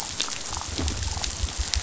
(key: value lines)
label: biophony
recorder: SoundTrap 500